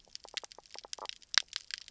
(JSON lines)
{"label": "biophony, knock croak", "recorder": "SoundTrap 300"}